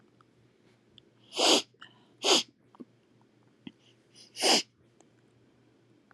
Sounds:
Sniff